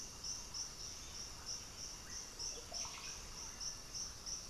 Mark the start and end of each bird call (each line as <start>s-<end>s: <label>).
0.0s-4.5s: Russet-backed Oropendola (Psarocolius angustifrons)